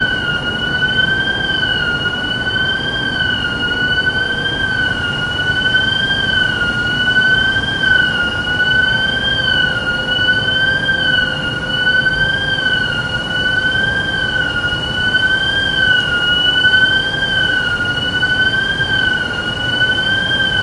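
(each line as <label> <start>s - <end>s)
A siren blares at consistent intervals, fading in and out over a noisy city hum and wind. 0.0s - 20.6s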